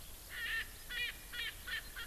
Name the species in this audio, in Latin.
Alauda arvensis, Pternistis erckelii